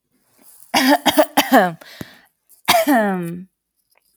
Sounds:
Cough